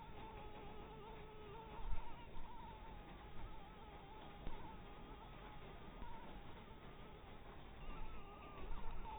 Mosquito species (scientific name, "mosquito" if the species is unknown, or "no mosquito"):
Anopheles maculatus